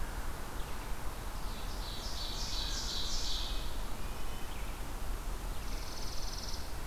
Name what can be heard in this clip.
Red-breasted Nuthatch, Ovenbird, Chipping Sparrow